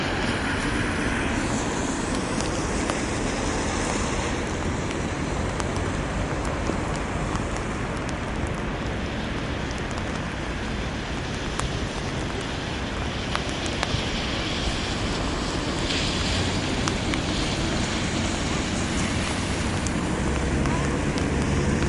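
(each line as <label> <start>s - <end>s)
Cars driving on a wet road. 0.0s - 21.9s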